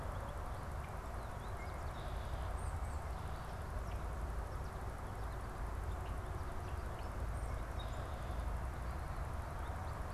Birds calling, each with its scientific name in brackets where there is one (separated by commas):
Red-winged Blackbird (Agelaius phoeniceus), Tufted Titmouse (Baeolophus bicolor), unidentified bird